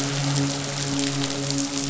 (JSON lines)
{"label": "biophony, midshipman", "recorder": "SoundTrap 500"}